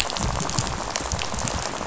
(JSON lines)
{"label": "biophony, rattle", "recorder": "SoundTrap 500"}